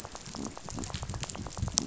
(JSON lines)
{"label": "biophony, rattle", "recorder": "SoundTrap 500"}